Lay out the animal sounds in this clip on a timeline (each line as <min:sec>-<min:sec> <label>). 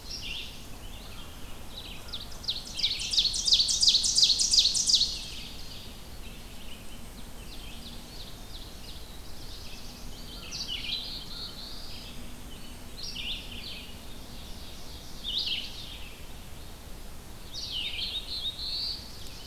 0:00.0-0:00.9 Black-throated Blue Warbler (Setophaga caerulescens)
0:00.0-0:19.5 Red-eyed Vireo (Vireo olivaceus)
0:01.5-0:05.8 Ovenbird (Seiurus aurocapilla)
0:01.8-0:02.9 American Crow (Corvus brachyrhynchos)
0:04.5-0:05.4 Tennessee Warbler (Leiothlypis peregrina)
0:06.8-0:09.2 Ovenbird (Seiurus aurocapilla)
0:08.2-0:10.3 Black-throated Blue Warbler (Setophaga caerulescens)
0:10.3-0:11.6 American Crow (Corvus brachyrhynchos)
0:10.8-0:12.2 Black-throated Blue Warbler (Setophaga caerulescens)
0:13.7-0:16.1 Ovenbird (Seiurus aurocapilla)
0:17.8-0:19.5 Black-throated Blue Warbler (Setophaga caerulescens)